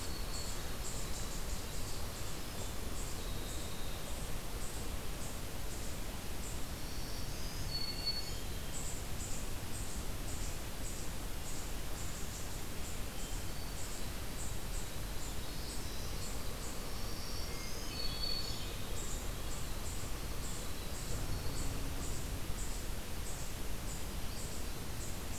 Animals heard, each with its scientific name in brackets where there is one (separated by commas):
Eastern Chipmunk (Tamias striatus), Winter Wren (Troglodytes hiemalis), Black-throated Green Warbler (Setophaga virens), Yellow-bellied Sapsucker (Sphyrapicus varius)